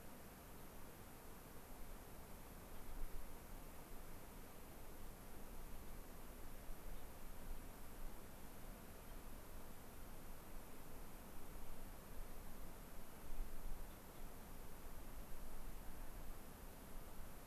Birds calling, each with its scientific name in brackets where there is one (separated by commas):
unidentified bird